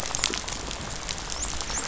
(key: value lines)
label: biophony, dolphin
recorder: SoundTrap 500